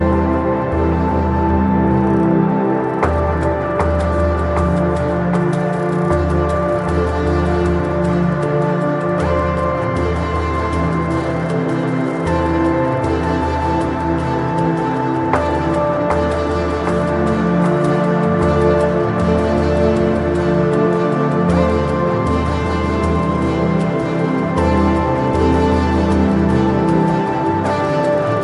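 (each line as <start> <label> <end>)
0.0 Relaxing ambient space music plays loudly on a loop. 28.4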